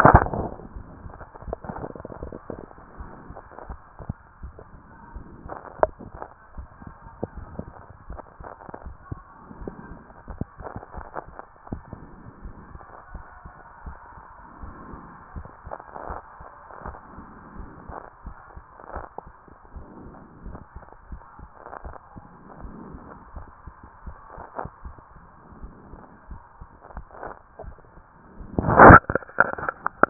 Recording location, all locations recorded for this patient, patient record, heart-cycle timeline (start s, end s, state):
mitral valve (MV)
pulmonary valve (PV)+tricuspid valve (TV)+mitral valve (MV)
#Age: Child
#Sex: Female
#Height: 135.0 cm
#Weight: 38.4 kg
#Pregnancy status: False
#Murmur: Absent
#Murmur locations: nan
#Most audible location: nan
#Systolic murmur timing: nan
#Systolic murmur shape: nan
#Systolic murmur grading: nan
#Systolic murmur pitch: nan
#Systolic murmur quality: nan
#Diastolic murmur timing: nan
#Diastolic murmur shape: nan
#Diastolic murmur grading: nan
#Diastolic murmur pitch: nan
#Diastolic murmur quality: nan
#Outcome: Abnormal
#Campaign: 2014 screening campaign
0.00	6.08	unannotated
6.08	6.12	systole
6.12	6.20	S2
6.20	6.56	diastole
6.56	6.68	S1
6.68	6.84	systole
6.84	6.94	S2
6.94	7.36	diastole
7.36	7.48	S1
7.48	7.58	systole
7.58	7.70	S2
7.70	8.08	diastole
8.08	8.20	S1
8.20	8.40	systole
8.40	8.48	S2
8.48	8.84	diastole
8.84	8.96	S1
8.96	9.10	systole
9.10	9.20	S2
9.20	9.60	diastole
9.60	9.74	S1
9.74	9.90	systole
9.90	10.00	S2
10.00	10.30	diastole
10.30	10.46	S1
10.46	10.60	systole
10.60	10.68	S2
10.68	10.96	diastole
10.96	11.06	S1
11.06	11.26	systole
11.26	11.36	S2
11.36	11.70	diastole
11.70	11.82	S1
11.82	11.98	systole
11.98	12.08	S2
12.08	12.44	diastole
12.44	12.54	S1
12.54	12.72	systole
12.72	12.82	S2
12.82	13.12	diastole
13.12	13.24	S1
13.24	13.44	systole
13.44	13.54	S2
13.54	13.86	diastole
13.86	13.96	S1
13.96	14.14	systole
14.14	14.24	S2
14.24	14.62	diastole
14.62	14.74	S1
14.74	14.90	systole
14.90	15.00	S2
15.00	15.34	diastole
15.34	15.48	S1
15.48	15.64	systole
15.64	15.74	S2
15.74	16.08	diastole
16.08	16.20	S1
16.20	16.38	systole
16.38	16.48	S2
16.48	16.84	diastole
16.84	16.98	S1
16.98	17.16	systole
17.16	17.26	S2
17.26	17.58	diastole
17.58	17.70	S1
17.70	17.88	systole
17.88	17.98	S2
17.98	18.24	diastole
18.24	18.36	S1
18.36	18.54	systole
18.54	18.64	S2
18.64	18.94	diastole
18.94	19.06	S1
19.06	19.24	systole
19.24	19.34	S2
19.34	19.74	diastole
19.74	19.86	S1
19.86	20.02	systole
20.02	20.12	S2
20.12	20.44	diastole
20.44	20.58	S1
20.58	20.74	systole
20.74	20.84	S2
20.84	21.10	diastole
21.10	21.22	S1
21.22	21.40	systole
21.40	21.50	S2
21.50	21.84	diastole
21.84	21.96	S1
21.96	22.16	systole
22.16	22.24	S2
22.24	22.62	diastole
22.62	22.74	S1
22.74	22.90	systole
22.90	23.02	S2
23.02	23.34	diastole
23.34	23.46	S1
23.46	23.66	systole
23.66	23.74	S2
23.74	24.06	diastole
24.06	24.16	S1
24.16	24.36	systole
24.36	24.46	S2
24.46	24.84	diastole
24.84	24.96	S1
24.96	25.14	systole
25.14	25.22	S2
25.22	25.60	diastole
25.60	25.72	S1
25.72	25.90	systole
25.90	26.00	S2
26.00	26.30	diastole
26.30	26.42	S1
26.42	26.56	systole
26.56	30.10	unannotated